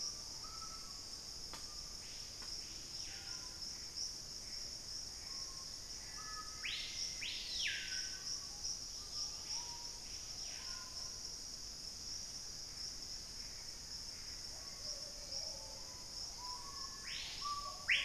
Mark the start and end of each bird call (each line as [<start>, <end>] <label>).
[0.00, 1.16] Hauxwell's Thrush (Turdus hauxwelli)
[0.00, 18.05] Screaming Piha (Lipaugus vociferans)
[3.36, 5.76] Gray Antbird (Cercomacra cinerascens)
[5.96, 8.56] Black-faced Antthrush (Formicarius analis)
[8.66, 10.06] Dusky-capped Greenlet (Pachysylvia hypoxantha)
[12.36, 14.76] Gray Antbird (Cercomacra cinerascens)
[14.66, 18.05] Plumbeous Pigeon (Patagioenas plumbea)